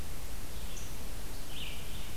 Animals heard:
Red-eyed Vireo (Vireo olivaceus)

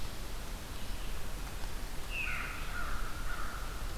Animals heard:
American Crow (Corvus brachyrhynchos)
Veery (Catharus fuscescens)

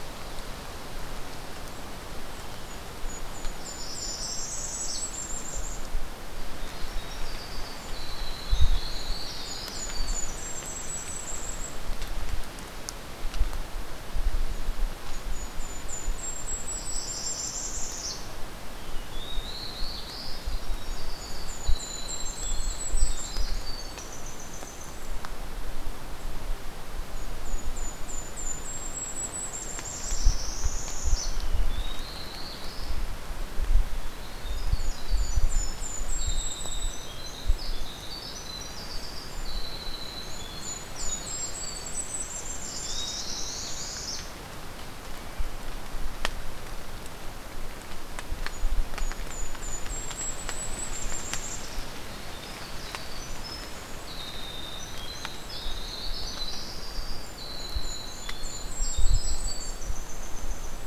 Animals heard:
Golden-crowned Kinglet (Regulus satrapa)
Olive-sided Flycatcher (Contopus cooperi)
Black-throated Blue Warbler (Setophaga caerulescens)
Winter Wren (Troglodytes hiemalis)
Northern Parula (Setophaga americana)

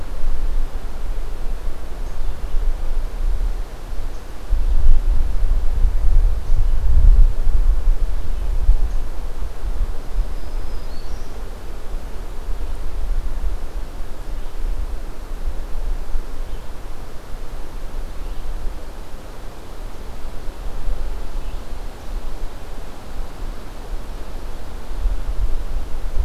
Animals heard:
Black-throated Green Warbler (Setophaga virens)

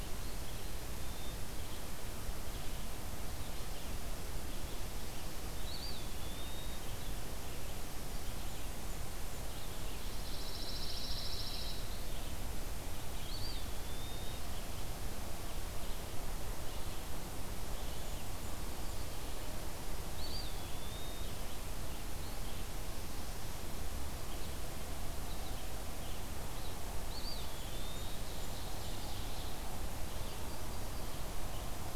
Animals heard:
Ovenbird (Seiurus aurocapilla)
Black-capped Chickadee (Poecile atricapillus)
Pine Warbler (Setophaga pinus)
Yellow-rumped Warbler (Setophaga coronata)
Eastern Wood-Pewee (Contopus virens)
Red-eyed Vireo (Vireo olivaceus)
Blackburnian Warbler (Setophaga fusca)

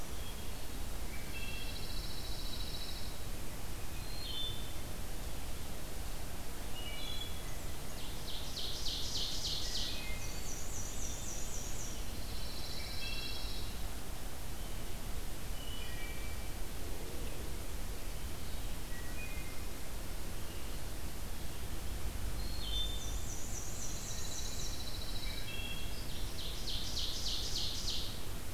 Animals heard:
Pine Warbler (Setophaga pinus)
Ovenbird (Seiurus aurocapilla)
Wood Thrush (Hylocichla mustelina)
Black-and-white Warbler (Mniotilta varia)

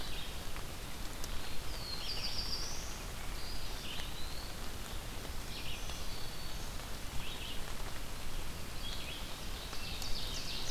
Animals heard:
Black-throated Green Warbler (Setophaga virens)
Ovenbird (Seiurus aurocapilla)
Red-eyed Vireo (Vireo olivaceus)
Black-throated Blue Warbler (Setophaga caerulescens)
Eastern Wood-Pewee (Contopus virens)

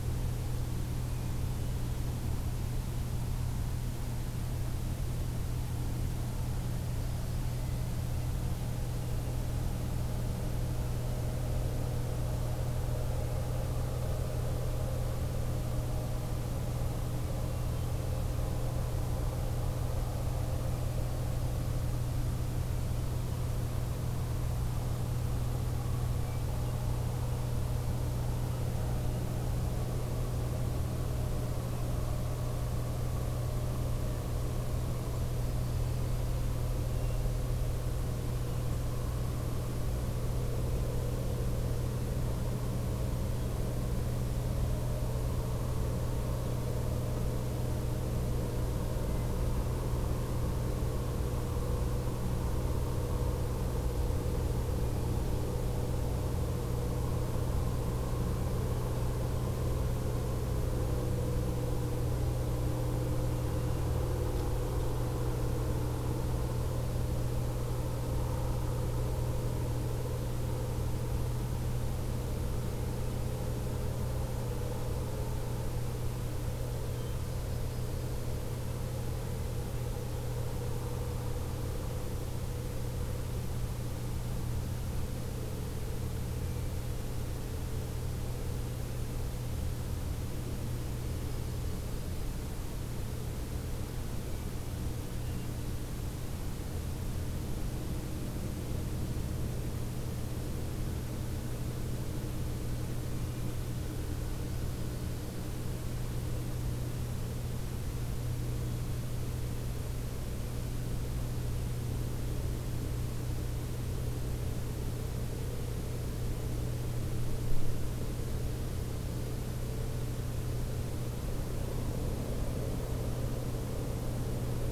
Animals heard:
Hermit Thrush (Catharus guttatus)
Yellow-rumped Warbler (Setophaga coronata)

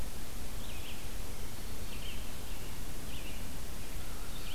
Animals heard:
Red-eyed Vireo (Vireo olivaceus)

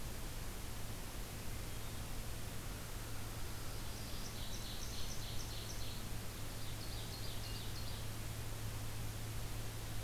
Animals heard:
American Crow (Corvus brachyrhynchos)
Black-throated Green Warbler (Setophaga virens)
Hermit Thrush (Catharus guttatus)
Ovenbird (Seiurus aurocapilla)

